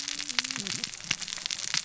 {"label": "biophony, cascading saw", "recorder": "SoundTrap 600 or HydroMoth"}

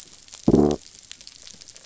{"label": "biophony", "recorder": "SoundTrap 500"}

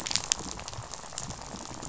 {"label": "biophony, rattle", "recorder": "SoundTrap 500"}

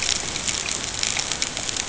{"label": "ambient", "recorder": "HydroMoth"}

